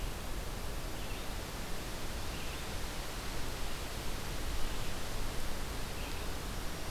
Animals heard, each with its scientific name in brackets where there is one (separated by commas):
Red-eyed Vireo (Vireo olivaceus)